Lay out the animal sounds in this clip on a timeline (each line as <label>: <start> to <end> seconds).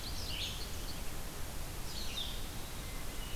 Indigo Bunting (Passerina cyanea): 0.0 to 1.0 seconds
Red-eyed Vireo (Vireo olivaceus): 0.0 to 3.4 seconds